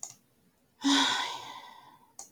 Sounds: Sigh